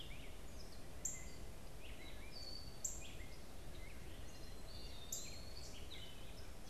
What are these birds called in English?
Gray Catbird, Northern Cardinal, Black-capped Chickadee, Eastern Wood-Pewee